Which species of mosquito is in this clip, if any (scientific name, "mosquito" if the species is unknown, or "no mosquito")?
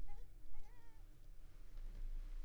Anopheles coustani